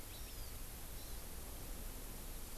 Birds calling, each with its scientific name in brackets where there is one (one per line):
Hawaii Amakihi (Chlorodrepanis virens)